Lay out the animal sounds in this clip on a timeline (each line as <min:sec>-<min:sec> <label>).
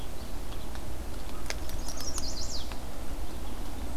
0:00.0-0:00.8 Rose-breasted Grosbeak (Pheucticus ludovicianus)
0:00.0-0:04.0 Red-eyed Vireo (Vireo olivaceus)
0:01.6-0:02.8 Chestnut-sided Warbler (Setophaga pensylvanica)